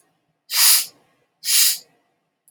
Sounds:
Sniff